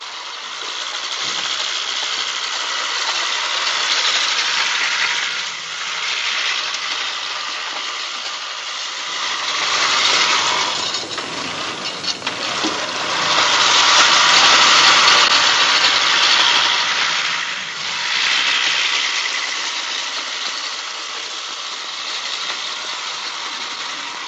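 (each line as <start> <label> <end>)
0.0 A push lawn mower is mowing loudly and unevenly outdoors. 24.3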